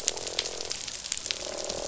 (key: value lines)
label: biophony, croak
recorder: SoundTrap 500